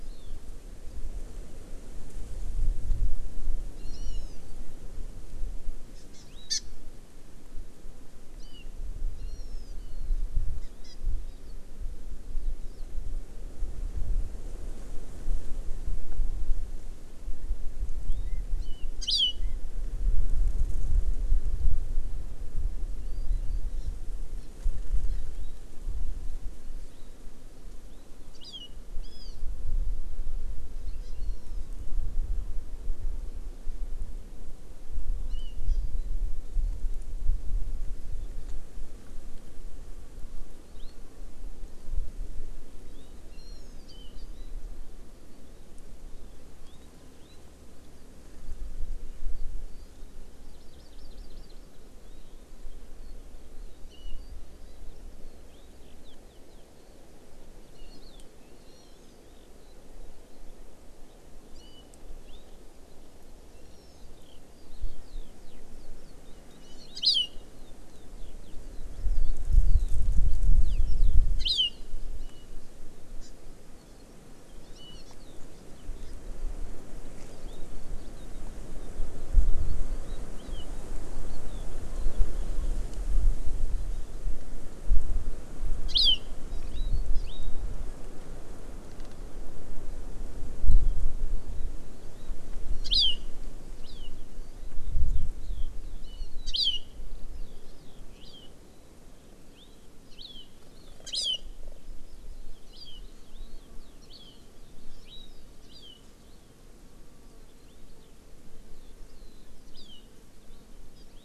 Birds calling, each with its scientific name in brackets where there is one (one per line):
Hawaii Amakihi (Chlorodrepanis virens)
Eurasian Skylark (Alauda arvensis)